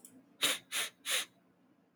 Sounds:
Sniff